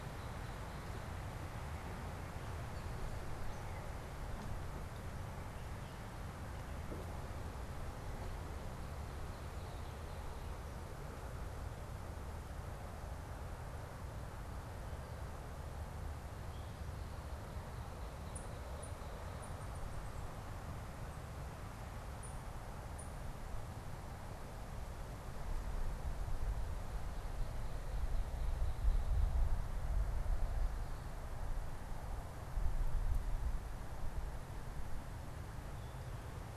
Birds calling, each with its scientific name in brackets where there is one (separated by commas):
unidentified bird